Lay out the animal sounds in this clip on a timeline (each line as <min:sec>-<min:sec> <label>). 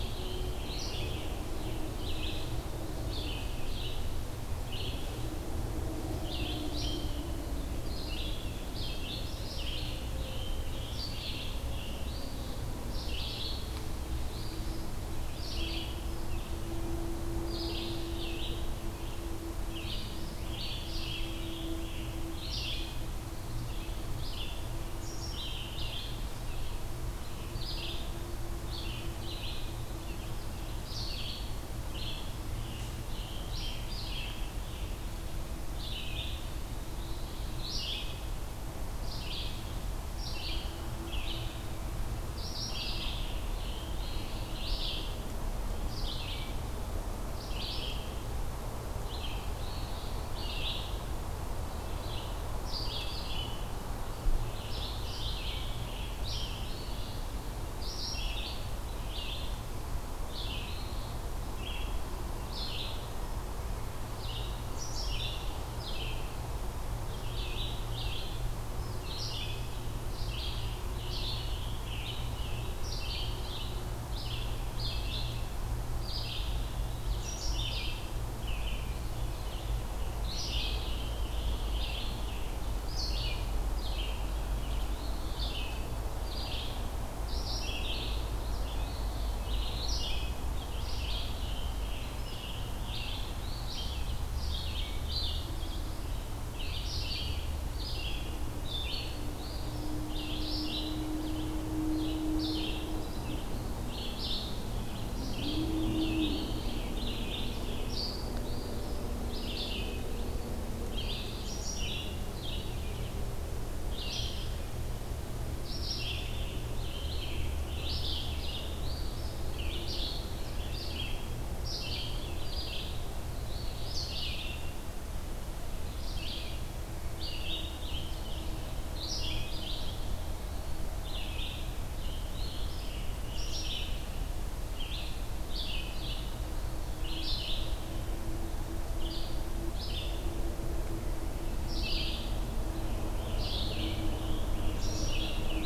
0:00.0-0:02.3 Scarlet Tanager (Piranga olivacea)
0:00.0-0:39.6 Red-eyed Vireo (Vireo olivaceus)
0:09.9-0:12.2 Scarlet Tanager (Piranga olivacea)
0:12.0-0:12.7 Eastern Phoebe (Sayornis phoebe)
0:14.3-0:14.9 Eastern Phoebe (Sayornis phoebe)
0:19.6-0:22.3 Scarlet Tanager (Piranga olivacea)
0:32.3-0:35.1 Scarlet Tanager (Piranga olivacea)
0:40.0-1:38.4 Red-eyed Vireo (Vireo olivaceus)
0:42.6-0:45.2 Scarlet Tanager (Piranga olivacea)
0:49.5-0:50.3 Eastern Phoebe (Sayornis phoebe)
0:54.4-0:57.2 Scarlet Tanager (Piranga olivacea)
1:00.6-1:01.2 Eastern Phoebe (Sayornis phoebe)
1:10.6-1:13.7 Scarlet Tanager (Piranga olivacea)
1:19.9-1:22.6 Scarlet Tanager (Piranga olivacea)
1:24.9-1:25.5 Eastern Phoebe (Sayornis phoebe)
1:28.8-1:29.3 Eastern Phoebe (Sayornis phoebe)
1:30.7-1:33.3 Scarlet Tanager (Piranga olivacea)
1:38.6-2:25.7 Red-eyed Vireo (Vireo olivaceus)
1:39.3-1:40.0 Eastern Phoebe (Sayornis phoebe)
1:46.0-1:48.1 Scarlet Tanager (Piranga olivacea)
1:48.4-1:49.1 Eastern Phoebe (Sayornis phoebe)
1:50.9-1:51.6 Eastern Phoebe (Sayornis phoebe)
1:56.2-1:59.0 Scarlet Tanager (Piranga olivacea)
1:58.8-1:59.5 Eastern Phoebe (Sayornis phoebe)
2:03.4-2:04.1 Eastern Phoebe (Sayornis phoebe)
2:12.3-2:13.0 Eastern Phoebe (Sayornis phoebe)
2:22.7-2:25.2 Scarlet Tanager (Piranga olivacea)